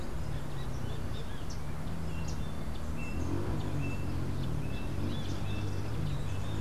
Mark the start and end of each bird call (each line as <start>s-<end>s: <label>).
0.0s-2.6s: Yellow Warbler (Setophaga petechia)
0.0s-5.7s: Great Kiskadee (Pitangus sulphuratus)